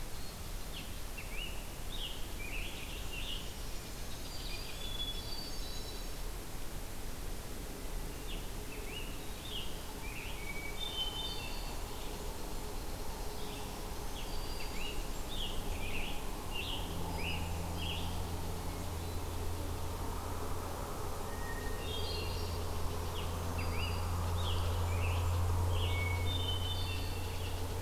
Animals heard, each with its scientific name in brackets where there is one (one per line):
Scarlet Tanager (Piranga olivacea)
unknown mammal
Black-throated Green Warbler (Setophaga virens)
Hermit Thrush (Catharus guttatus)
Great Crested Flycatcher (Myiarchus crinitus)